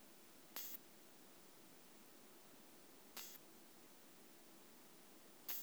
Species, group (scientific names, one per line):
Isophya modestior
Orthoptera